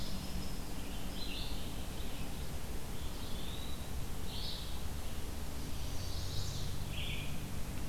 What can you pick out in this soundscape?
Winter Wren, Red-eyed Vireo, Eastern Wood-Pewee, Chestnut-sided Warbler